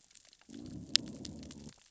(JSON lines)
{"label": "biophony, growl", "recorder": "SoundTrap 600 or HydroMoth"}